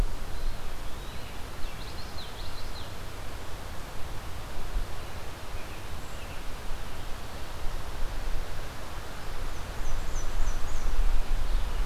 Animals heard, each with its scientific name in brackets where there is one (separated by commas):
Common Yellowthroat (Geothlypis trichas), American Robin (Turdus migratorius), Eastern Wood-Pewee (Contopus virens), Black-and-white Warbler (Mniotilta varia)